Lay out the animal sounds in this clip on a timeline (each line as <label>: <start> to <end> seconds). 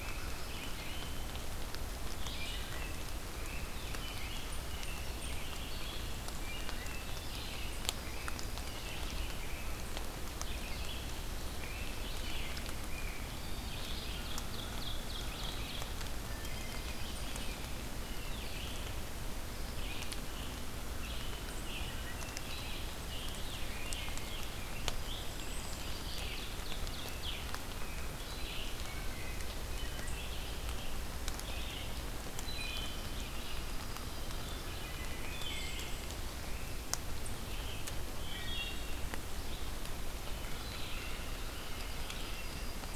American Robin (Turdus migratorius): 0.0 to 1.4 seconds
Red-eyed Vireo (Vireo olivaceus): 0.0 to 15.9 seconds
Wood Thrush (Hylocichla mustelina): 2.2 to 2.9 seconds
American Robin (Turdus migratorius): 2.7 to 6.2 seconds
unidentified call: 4.4 to 5.5 seconds
Wood Thrush (Hylocichla mustelina): 6.4 to 7.2 seconds
American Robin (Turdus migratorius): 7.4 to 9.9 seconds
American Robin (Turdus migratorius): 11.5 to 13.5 seconds
Ovenbird (Seiurus aurocapilla): 13.7 to 15.9 seconds
American Crow (Corvus brachyrhynchos): 14.5 to 16.1 seconds
Wood Thrush (Hylocichla mustelina): 16.2 to 16.9 seconds
American Robin (Turdus migratorius): 16.9 to 18.3 seconds
Red-eyed Vireo (Vireo olivaceus): 16.9 to 43.0 seconds
Wood Thrush (Hylocichla mustelina): 21.9 to 22.4 seconds
Rose-breasted Grosbeak (Pheucticus ludovicianus): 22.9 to 25.6 seconds
Yellow-rumped Warbler (Setophaga coronata): 24.7 to 26.4 seconds
unidentified call: 25.1 to 25.9 seconds
Ovenbird (Seiurus aurocapilla): 25.5 to 27.4 seconds
American Robin (Turdus migratorius): 27.0 to 29.1 seconds
Wood Thrush (Hylocichla mustelina): 28.7 to 29.4 seconds
Wood Thrush (Hylocichla mustelina): 32.3 to 33.0 seconds
Yellow-rumped Warbler (Setophaga coronata): 33.1 to 34.6 seconds
Wood Thrush (Hylocichla mustelina): 35.1 to 36.0 seconds
unidentified call: 35.2 to 36.1 seconds
Wood Thrush (Hylocichla mustelina): 38.2 to 39.0 seconds
Wood Thrush (Hylocichla mustelina): 40.3 to 41.1 seconds
American Robin (Turdus migratorius): 40.7 to 42.8 seconds
Yellow-rumped Warbler (Setophaga coronata): 41.2 to 43.0 seconds